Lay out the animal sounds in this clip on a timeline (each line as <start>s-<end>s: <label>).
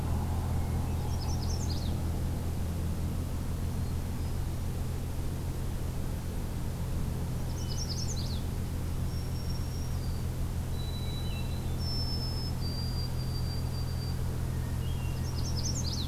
0.5s-1.4s: Hermit Thrush (Catharus guttatus)
1.0s-1.9s: Magnolia Warbler (Setophaga magnolia)
3.5s-4.7s: Hermit Thrush (Catharus guttatus)
7.3s-8.2s: Hermit Thrush (Catharus guttatus)
7.4s-8.4s: Magnolia Warbler (Setophaga magnolia)
9.0s-10.3s: Black-throated Green Warbler (Setophaga virens)
10.7s-14.3s: White-throated Sparrow (Zonotrichia albicollis)
10.9s-11.6s: Hermit Thrush (Catharus guttatus)
14.5s-15.4s: Hermit Thrush (Catharus guttatus)
15.1s-16.1s: Magnolia Warbler (Setophaga magnolia)